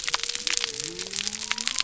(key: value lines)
label: biophony
recorder: SoundTrap 300